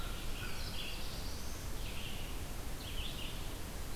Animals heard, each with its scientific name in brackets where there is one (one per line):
American Crow (Corvus brachyrhynchos)
Black-throated Blue Warbler (Setophaga caerulescens)
Red-eyed Vireo (Vireo olivaceus)